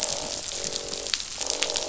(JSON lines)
{"label": "biophony, croak", "recorder": "SoundTrap 500"}